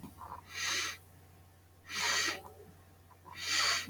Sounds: Sniff